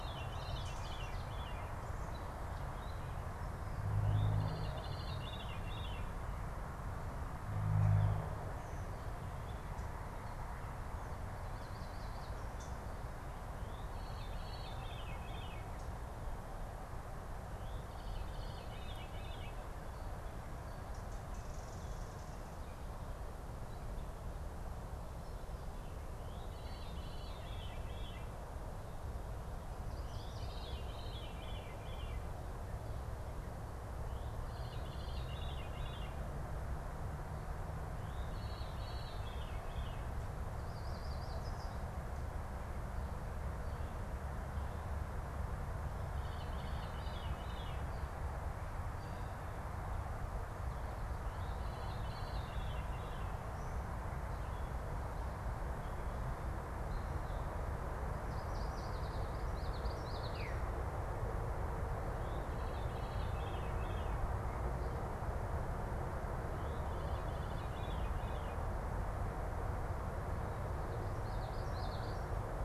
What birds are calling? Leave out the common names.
Catharus fuscescens, Setophaga petechia, unidentified bird, Geothlypis trichas